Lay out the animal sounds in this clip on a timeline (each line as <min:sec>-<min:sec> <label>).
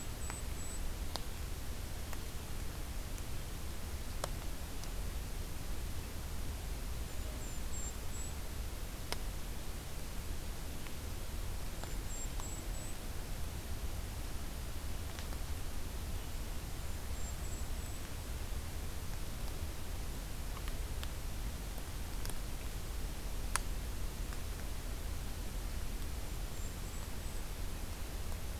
0:00.0-0:00.9 Golden-crowned Kinglet (Regulus satrapa)
0:06.9-0:08.5 Golden-crowned Kinglet (Regulus satrapa)
0:11.6-0:13.0 Golden-crowned Kinglet (Regulus satrapa)
0:16.7-0:18.3 Golden-crowned Kinglet (Regulus satrapa)
0:26.1-0:27.6 Golden-crowned Kinglet (Regulus satrapa)